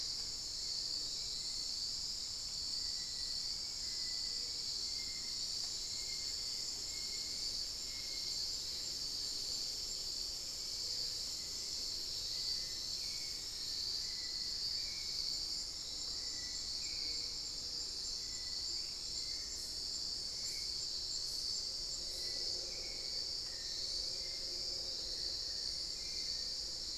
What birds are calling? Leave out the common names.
Turdus hauxwelli, Crypturellus soui, Formicarius analis